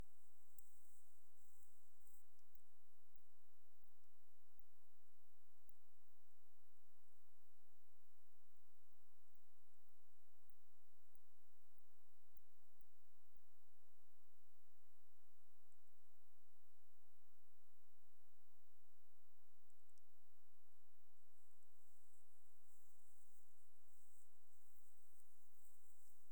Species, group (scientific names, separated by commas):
Tylopsis lilifolia, Orthoptera